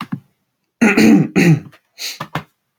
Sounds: Throat clearing